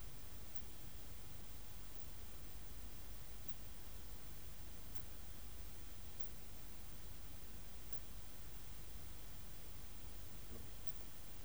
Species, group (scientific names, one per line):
Poecilimon zimmeri
Orthoptera